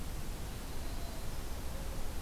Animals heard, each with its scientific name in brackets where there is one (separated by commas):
Yellow-rumped Warbler (Setophaga coronata)